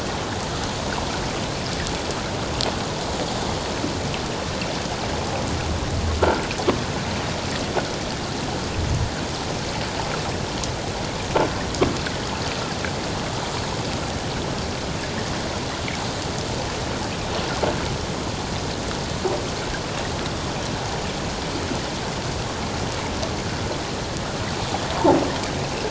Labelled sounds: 6.2	6.4	croaking sound likely from a nearby submerged object, 1.3 to 1.6 kHz

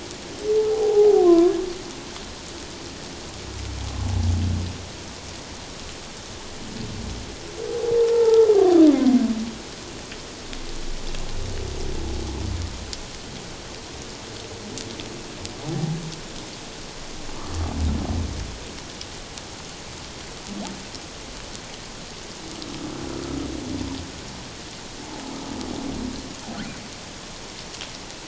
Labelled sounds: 0.7	1.6	humpback whale, 0.78 to 1.2 kHz
8.1	8.5	humpback whale, 0.81 to 1.4 kHz
15.6	16.0	humpback whale, 0.78 to 1.0 kHz

